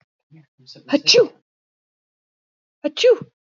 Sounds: Sneeze